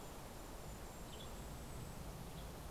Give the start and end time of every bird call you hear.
0.0s-2.7s: Golden-crowned Kinglet (Regulus satrapa)
0.0s-2.7s: Western Tanager (Piranga ludoviciana)

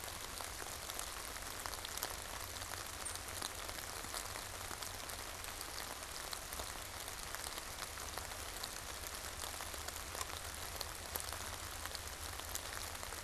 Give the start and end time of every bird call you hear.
2.9s-3.2s: unidentified bird

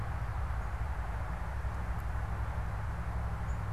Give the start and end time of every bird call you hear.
3.3s-3.7s: unidentified bird

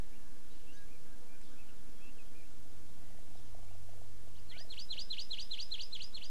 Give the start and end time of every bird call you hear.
0.5s-2.1s: Erckel's Francolin (Pternistis erckelii)
4.5s-6.3s: Hawaii Amakihi (Chlorodrepanis virens)

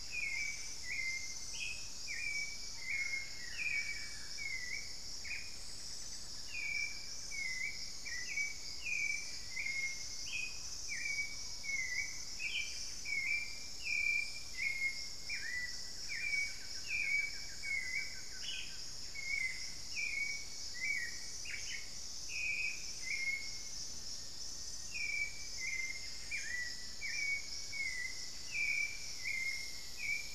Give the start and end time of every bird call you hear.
0.0s-2.6s: Thrush-like Wren (Campylorhynchus turdinus)
0.0s-30.3s: Hauxwell's Thrush (Turdus hauxwelli)
0.0s-30.3s: unidentified bird
2.5s-4.7s: Buff-throated Woodcreeper (Xiphorhynchus guttatus)
4.9s-5.7s: Black-faced Antthrush (Formicarius analis)
5.3s-7.5s: Buff-throated Woodcreeper (Xiphorhynchus guttatus)
11.8s-13.1s: Buff-breasted Wren (Cantorchilus leucotis)
12.4s-12.8s: Ash-throated Gnateater (Conopophaga peruviana)
15.2s-19.0s: Buff-throated Woodcreeper (Xiphorhynchus guttatus)
18.2s-18.9s: Ash-throated Gnateater (Conopophaga peruviana)
23.6s-27.7s: Buff-throated Woodcreeper (Xiphorhynchus guttatus)

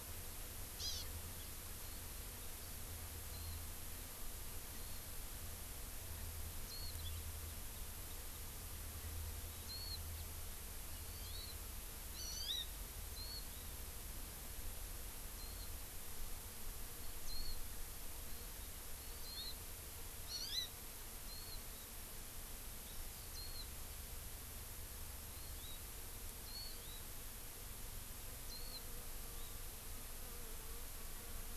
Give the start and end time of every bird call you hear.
0.8s-1.0s: Hawaii Amakihi (Chlorodrepanis virens)
3.3s-3.5s: Warbling White-eye (Zosterops japonicus)
4.7s-5.0s: Warbling White-eye (Zosterops japonicus)
6.7s-6.9s: Warbling White-eye (Zosterops japonicus)
9.6s-10.0s: Warbling White-eye (Zosterops japonicus)
11.0s-11.5s: Hawaii Amakihi (Chlorodrepanis virens)
12.1s-12.6s: Hawaii Amakihi (Chlorodrepanis virens)
13.2s-13.4s: Warbling White-eye (Zosterops japonicus)
15.3s-15.6s: Warbling White-eye (Zosterops japonicus)
17.2s-17.6s: Warbling White-eye (Zosterops japonicus)
19.0s-19.6s: Hawaii Amakihi (Chlorodrepanis virens)
20.3s-20.7s: Hawaii Amakihi (Chlorodrepanis virens)
21.3s-21.6s: Warbling White-eye (Zosterops japonicus)
23.3s-23.6s: Warbling White-eye (Zosterops japonicus)
25.3s-25.8s: Hawaii Amakihi (Chlorodrepanis virens)
26.4s-26.7s: Warbling White-eye (Zosterops japonicus)
26.6s-27.0s: Hawaii Amakihi (Chlorodrepanis virens)
28.4s-28.8s: Warbling White-eye (Zosterops japonicus)

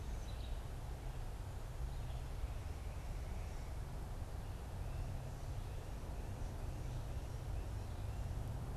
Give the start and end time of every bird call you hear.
0.0s-2.4s: Red-eyed Vireo (Vireo olivaceus)
2.1s-8.5s: Tufted Titmouse (Baeolophus bicolor)

